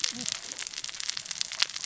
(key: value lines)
label: biophony, cascading saw
recorder: SoundTrap 600 or HydroMoth